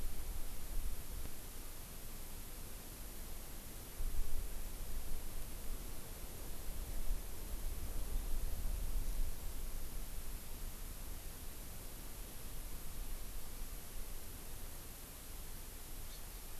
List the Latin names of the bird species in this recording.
Chlorodrepanis virens